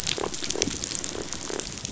{"label": "biophony, rattle response", "recorder": "SoundTrap 500"}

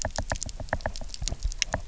{"label": "biophony, knock", "recorder": "SoundTrap 300"}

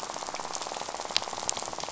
{"label": "biophony, rattle", "recorder": "SoundTrap 500"}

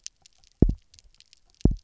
{"label": "biophony, double pulse", "recorder": "SoundTrap 300"}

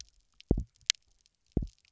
{"label": "biophony, double pulse", "recorder": "SoundTrap 300"}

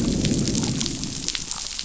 {"label": "biophony, growl", "recorder": "SoundTrap 500"}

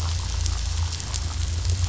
{"label": "anthrophony, boat engine", "recorder": "SoundTrap 500"}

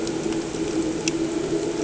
{"label": "anthrophony, boat engine", "recorder": "HydroMoth"}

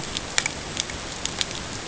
{"label": "ambient", "recorder": "HydroMoth"}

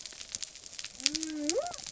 {"label": "biophony", "recorder": "SoundTrap 300"}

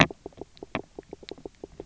{"label": "biophony, knock croak", "recorder": "SoundTrap 300"}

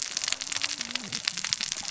{"label": "biophony, cascading saw", "recorder": "SoundTrap 600 or HydroMoth"}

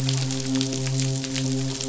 {"label": "biophony, midshipman", "recorder": "SoundTrap 500"}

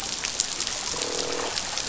{"label": "biophony, croak", "recorder": "SoundTrap 500"}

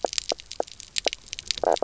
{"label": "biophony, knock croak", "recorder": "SoundTrap 300"}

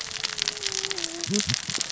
{"label": "biophony, cascading saw", "recorder": "SoundTrap 600 or HydroMoth"}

